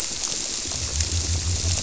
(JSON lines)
{"label": "biophony", "recorder": "SoundTrap 300"}